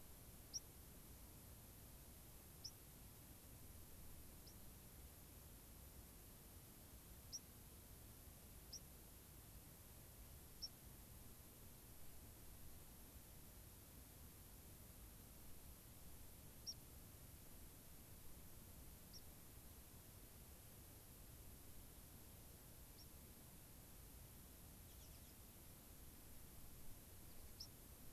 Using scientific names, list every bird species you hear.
Zonotrichia leucophrys, Anthus rubescens